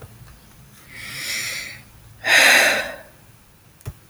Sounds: Sigh